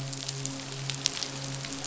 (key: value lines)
label: biophony, midshipman
recorder: SoundTrap 500